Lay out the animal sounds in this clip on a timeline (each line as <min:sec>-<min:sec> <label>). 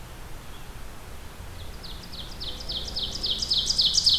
0:01.0-0:04.2 Ovenbird (Seiurus aurocapilla)